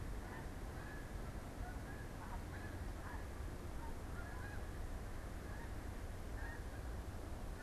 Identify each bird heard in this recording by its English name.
Snow Goose